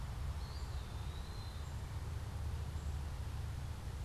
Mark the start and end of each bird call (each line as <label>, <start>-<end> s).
Eastern Wood-Pewee (Contopus virens), 0.2-1.9 s